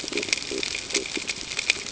{"label": "ambient", "recorder": "HydroMoth"}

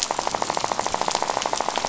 {"label": "biophony, rattle", "recorder": "SoundTrap 500"}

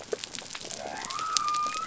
{"label": "biophony", "recorder": "SoundTrap 300"}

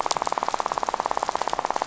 {"label": "biophony, rattle", "recorder": "SoundTrap 500"}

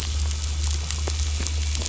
{"label": "anthrophony, boat engine", "recorder": "SoundTrap 500"}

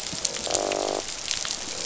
{"label": "biophony, croak", "recorder": "SoundTrap 500"}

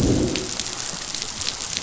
{"label": "biophony, growl", "recorder": "SoundTrap 500"}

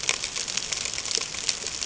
{"label": "ambient", "recorder": "HydroMoth"}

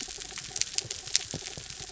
{"label": "anthrophony, mechanical", "recorder": "SoundTrap 300"}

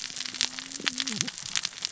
{"label": "biophony, cascading saw", "recorder": "SoundTrap 600 or HydroMoth"}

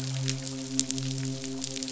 {"label": "biophony, midshipman", "recorder": "SoundTrap 500"}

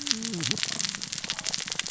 {"label": "biophony, cascading saw", "recorder": "SoundTrap 600 or HydroMoth"}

